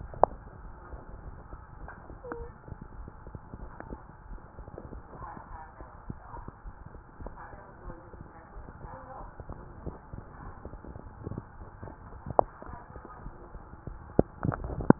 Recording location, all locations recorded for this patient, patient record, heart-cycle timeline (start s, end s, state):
mitral valve (MV)
pulmonary valve (PV)+mitral valve (MV)
#Age: Adolescent
#Sex: Female
#Height: 147.0 cm
#Weight: 54.9 kg
#Pregnancy status: False
#Murmur: Absent
#Murmur locations: nan
#Most audible location: nan
#Systolic murmur timing: nan
#Systolic murmur shape: nan
#Systolic murmur grading: nan
#Systolic murmur pitch: nan
#Systolic murmur quality: nan
#Diastolic murmur timing: nan
#Diastolic murmur shape: nan
#Diastolic murmur grading: nan
#Diastolic murmur pitch: nan
#Diastolic murmur quality: nan
#Outcome: Normal
#Campaign: 2015 screening campaign
0.00	0.42	unannotated
0.42	0.62	diastole
0.62	0.74	S1
0.74	0.86	systole
0.86	1.00	S2
1.00	1.24	diastole
1.24	1.38	S1
1.38	1.50	systole
1.50	1.62	S2
1.62	1.80	diastole
1.80	1.90	S1
1.90	2.10	systole
2.10	2.18	S2
2.18	2.38	diastole
2.38	2.50	S1
2.50	2.68	systole
2.68	2.78	S2
2.78	2.94	diastole
2.94	3.08	S1
3.08	3.26	systole
3.26	3.40	S2
3.40	3.62	diastole
3.62	3.74	S1
3.74	3.90	systole
3.90	4.04	S2
4.04	4.26	diastole
4.26	4.42	S1
4.42	4.60	systole
4.60	4.68	S2
4.68	4.92	diastole
4.92	5.02	S1
5.02	5.20	systole
5.20	5.30	S2
5.30	5.50	diastole
5.50	5.62	S1
5.62	5.78	systole
5.78	5.88	S2
5.88	6.08	diastole
6.08	6.18	S1
6.18	6.34	systole
6.34	6.46	S2
6.46	6.66	diastole
6.66	6.74	S1
6.74	6.92	systole
6.92	7.02	S2
7.02	7.22	diastole
7.22	7.34	S1
7.34	7.48	systole
7.48	7.58	S2
7.58	7.86	diastole
7.86	7.96	S1
7.96	8.18	systole
8.18	8.26	S2
8.26	8.54	diastole
8.54	8.66	S1
8.66	8.82	systole
8.82	8.94	S2
8.94	9.22	diastole
9.22	9.32	S1
9.32	9.48	systole
9.48	9.58	S2
9.58	9.80	diastole
9.80	14.99	unannotated